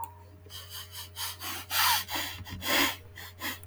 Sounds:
Sniff